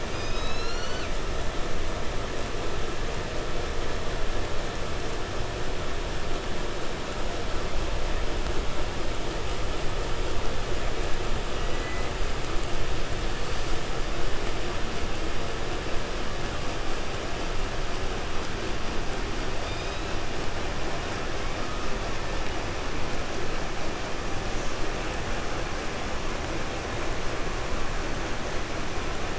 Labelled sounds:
0.0	1.2	killer whale, southern resident, J pod, call S12, 0.85 to 7.9 kHz
11.5	12.2	killer whale, southern resident, 1.4 to 6.8 kHz
19.5	20.4	killer whale, 1.0 to 8.0 kHz
21.3	22.5	killer whale, 0.62 to 3.2 kHz
24.5	24.8	killer whale, southern resident, J pod, call S05, 5.1 to 8.0 kHz

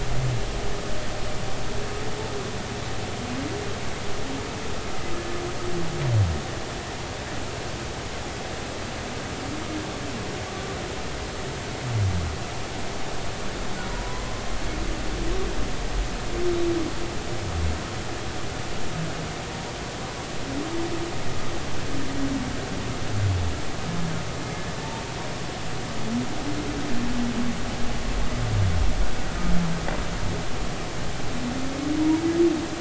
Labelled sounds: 13.9	14.2	humpback whale, 0.93 to 1.1 kHz
32.0	32.2	humpback whale, 0.86 to 1.0 kHz

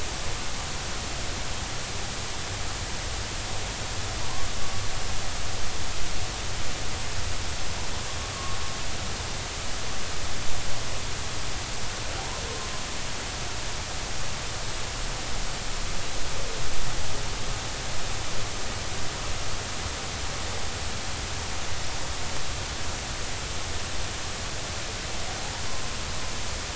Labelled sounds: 4.2	4.5	humpback whale, 0.90 to 1.2 kHz
8.3	8.6	humpback whale, 1.1 to 1.2 kHz
12.2	12.4	humpback whale, 0.80 to 1.1 kHz

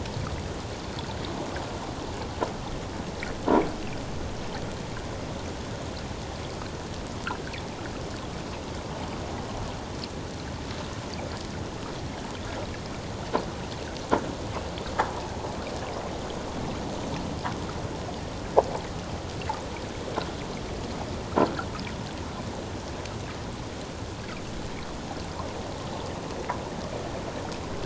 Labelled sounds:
21.4	21.7	croaking sound likely from a nearby submerged object, 1.3 to 1.7 kHz

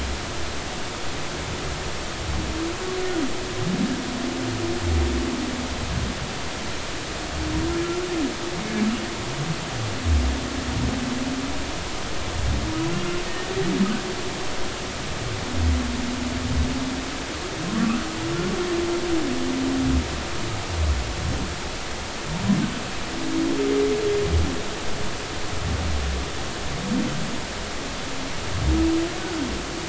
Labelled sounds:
17.7	18.0	humpback whale, 0.99 to 1.4 kHz

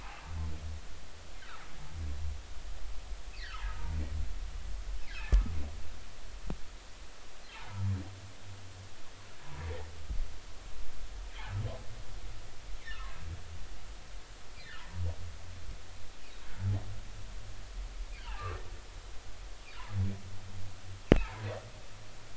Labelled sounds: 3.4	4.0	humpback whale, 0.83 to 2.2 kHz
5.1	5.4	humpback whale, 1.2 to 1.8 kHz
7.5	7.8	humpback whale, 0.80 to 1.1 kHz
12.8	13.1	humpback whale, 1.7 to 2.1 kHz
18.2	18.5	humpback whale, 1.6 to 3.3 kHz
21.2	21.5	humpback whale, 0.83 to 1.1 kHz

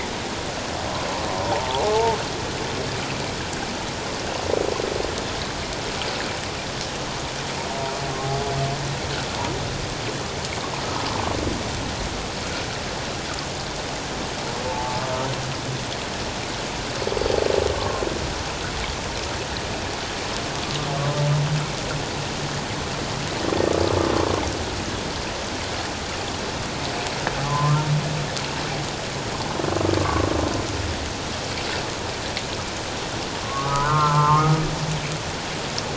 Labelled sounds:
1.4	2.2	humpback whale, 0.78 to 1.1 kHz
14.6	15.0	humpback whale, 0.78 to 0.94 kHz
17.7	18.0	humpback whale, 1.0 to 1.2 kHz
27.4	27.8	humpback whale, 0.84 to 1.2 kHz
30.0	30.3	humpback whale, 1.0 to 1.2 kHz
33.4	34.6	humpback whale, 0.84 to 1.5 kHz

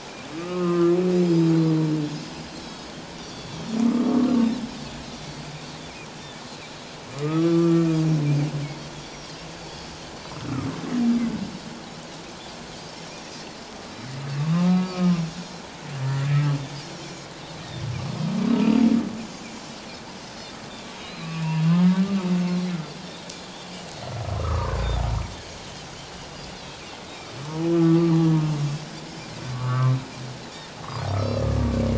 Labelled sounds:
1.2	1.5	Pacific white-sided dolphin, 4.8 to 5.2 kHz
2.6	3.6	Pacific white-sided dolphin, 3.2 to 4.8 kHz
4.1	4.5	humpback whale, 1.1 to 1.2 kHz
6.5	6.9	Pacific white-sided dolphin, 3.8 to 4.0 kHz
7.1	7.9	humpback whale, 1.1 to 1.4 kHz
8.9	9.9	Pacific white-sided dolphin, 3.2 to 5.8 kHz
14.4	15.2	humpback whale, 1.0 to 2.4 kHz
16.0	16.3	humpback whale, 1.7 to 2.0 kHz
18.5	18.8	humpback whale, 1.2 to 1.4 kHz
21.0	21.7	Pacific white-sided dolphin, 2.4 to 5.2 kHz
21.6	22.0	humpback whale, 1.1 to 1.3 kHz
23.3	23.7	Pacific white-sided dolphin, 3.2 to 3.6 kHz
24.4	24.8	humpback whale, 0.88 to 1.4 kHz
26.6	26.8	Pacific white-sided dolphin, 3.8 to 4.3 kHz
27.7	28.5	humpback whale, 1.1 to 1.4 kHz
28.2	28.5	Pacific white-sided dolphin, 5.8 to 6.1 kHz
29.5	30.0	Pacific white-sided dolphin, 1.0 to 1.4 kHz
31.2	31.5	Pacific white-sided dolphin, 3.9 to 5.8 kHz

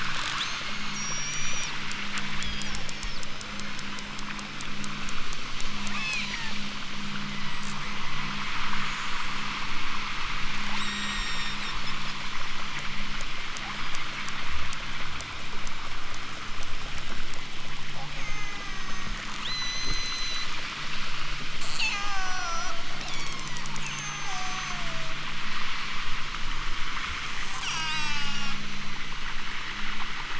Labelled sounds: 0.3	1.7	killer whale, southern Alaska resident, 3.7 to 8.0 kHz
2.3	2.7	killer whale, southern Alaska resident, 2.9 to 5.5 kHz
3.2	3.9	killer whale, southern Alaska resident, 2.8 to 7.1 kHz
5.9	6.7	killer whale, southern Alaska resident, 0.69 to 8.0 kHz
7.7	8.7	killer whale, southern Alaska resident, 5.2 to 8.0 kHz
10.5	12.2	killer whale, southern Alaska resident, 1.5 to 8.0 kHz
13.5	14.4	killer whale, southern Alaska resident, 4.0 to 6.9 kHz
18.1	20.5	killer whale, southern Alaska resident, 0.69 to 8.0 kHz
21.6	22.7	killer whale, southern Alaska resident, 0.73 to 8.0 kHz
23.0	25.2	killer whale, southern Alaska resident, 1.1 to 8.0 kHz
27.6	29.2	killer whale, southern Alaska resident, 0.60 to 8.0 kHz

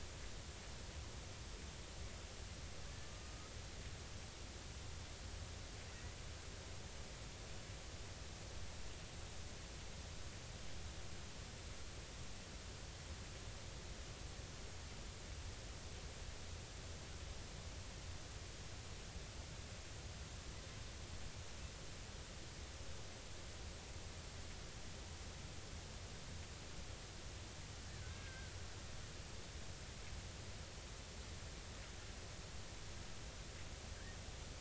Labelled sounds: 28.0	28.6	killer whale, Bigg's (transient), 1.3 to 1.7 kHz

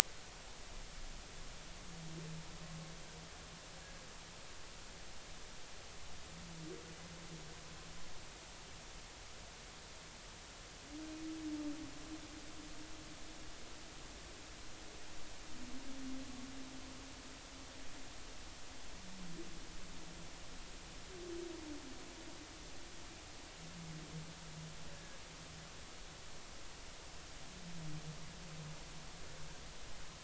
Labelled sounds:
24.9	25.2	humpback whale, 1.6 to 1.7 kHz

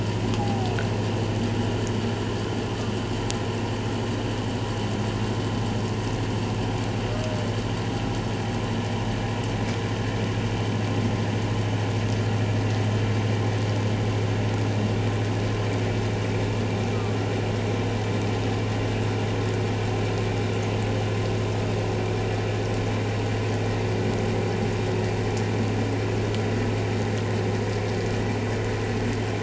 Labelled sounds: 0.4	0.7	humpback whale, 0.78 to 0.88 kHz
16.9	17.2	humpback whale, 1.1 to 1.3 kHz

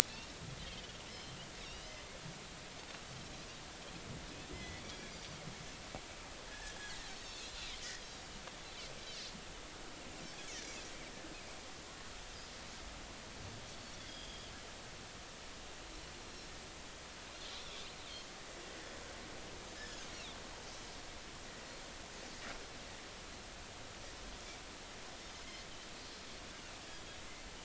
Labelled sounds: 1.1	2.0	Pacific white-sided dolphin, 2.6 to 4.1 kHz
4.5	5.2	Pacific white-sided dolphin, 1.9 to 2.4 kHz
6.5	7.6	Pacific white-sided dolphin, 1.6 to 4.7 kHz
14.1	14.5	Pacific white-sided dolphin, 3.1 to 3.5 kHz
17.6	17.8	Pacific white-sided dolphin, 3.2 to 3.6 kHz
19.8	20.4	Pacific white-sided dolphin, 3.2 to 5.4 kHz
26.0	26.3	Pacific white-sided dolphin, 4.1 to 4.2 kHz

